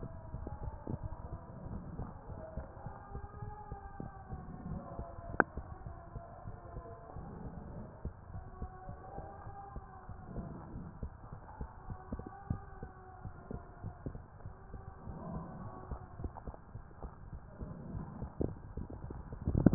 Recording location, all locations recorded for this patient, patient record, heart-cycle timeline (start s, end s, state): mitral valve (MV)
aortic valve (AV)+pulmonary valve (PV)+tricuspid valve (TV)+mitral valve (MV)
#Age: Child
#Sex: Female
#Height: 123.0 cm
#Weight: 31.2 kg
#Pregnancy status: False
#Murmur: Absent
#Murmur locations: nan
#Most audible location: nan
#Systolic murmur timing: nan
#Systolic murmur shape: nan
#Systolic murmur grading: nan
#Systolic murmur pitch: nan
#Systolic murmur quality: nan
#Diastolic murmur timing: nan
#Diastolic murmur shape: nan
#Diastolic murmur grading: nan
#Diastolic murmur pitch: nan
#Diastolic murmur quality: nan
#Outcome: Normal
#Campaign: 2015 screening campaign
0.00	8.14	unannotated
8.14	8.34	diastole
8.34	8.46	S1
8.46	8.60	systole
8.60	8.70	S2
8.70	8.88	diastole
8.88	9.00	S1
9.00	9.14	systole
9.14	9.24	S2
9.24	9.46	diastole
9.46	9.54	S1
9.54	9.72	systole
9.72	9.84	S2
9.84	10.10	diastole
10.10	10.20	S1
10.20	10.36	systole
10.36	10.50	S2
10.50	10.74	diastole
10.74	10.88	S1
10.88	11.00	systole
11.00	11.12	S2
11.12	11.32	diastole
11.32	11.42	S1
11.42	11.56	systole
11.56	11.70	S2
11.70	11.88	diastole
11.88	11.98	S1
11.98	12.10	systole
12.10	12.24	S2
12.24	12.48	diastole
12.48	12.62	S1
12.62	12.78	systole
12.78	12.92	S2
12.92	13.22	diastole
13.22	13.34	S1
13.34	13.50	systole
13.50	13.62	S2
13.62	13.84	diastole
13.84	13.96	S1
13.96	14.14	systole
14.14	14.24	S2
14.24	14.46	diastole
14.46	14.56	S1
14.56	14.70	systole
14.70	14.82	S2
14.82	15.06	diastole
15.06	15.18	S1
15.18	15.28	systole
15.28	15.40	S2
15.40	15.60	diastole
15.60	15.72	S1
15.72	15.88	systole
15.88	16.00	S2
16.00	16.18	diastole
16.18	19.74	unannotated